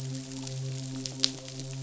{"label": "biophony, midshipman", "recorder": "SoundTrap 500"}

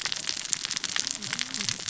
{"label": "biophony, cascading saw", "recorder": "SoundTrap 600 or HydroMoth"}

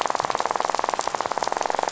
{"label": "biophony, rattle", "recorder": "SoundTrap 500"}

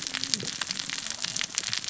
{"label": "biophony, cascading saw", "recorder": "SoundTrap 600 or HydroMoth"}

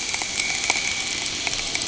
{"label": "anthrophony, boat engine", "recorder": "HydroMoth"}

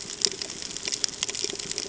{"label": "ambient", "recorder": "HydroMoth"}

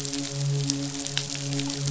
{"label": "biophony, midshipman", "recorder": "SoundTrap 500"}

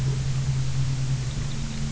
{"label": "anthrophony, boat engine", "recorder": "SoundTrap 300"}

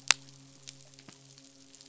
{"label": "biophony, midshipman", "recorder": "SoundTrap 500"}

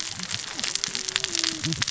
{"label": "biophony, cascading saw", "recorder": "SoundTrap 600 or HydroMoth"}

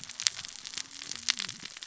{"label": "biophony, cascading saw", "recorder": "SoundTrap 600 or HydroMoth"}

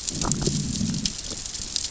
{"label": "biophony, growl", "recorder": "SoundTrap 600 or HydroMoth"}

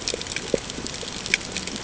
{"label": "ambient", "recorder": "HydroMoth"}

